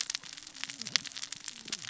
{"label": "biophony, cascading saw", "recorder": "SoundTrap 600 or HydroMoth"}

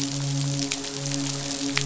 {"label": "biophony, midshipman", "recorder": "SoundTrap 500"}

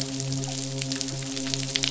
{"label": "biophony, midshipman", "recorder": "SoundTrap 500"}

